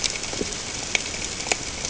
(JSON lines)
{"label": "ambient", "recorder": "HydroMoth"}